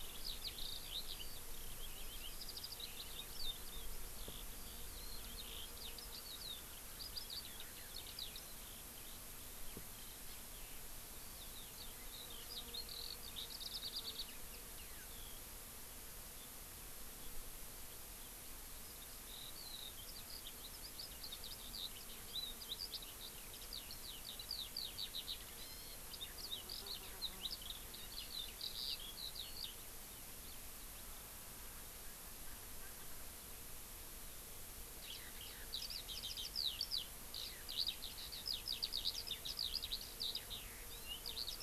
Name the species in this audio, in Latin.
Alauda arvensis, Chlorodrepanis virens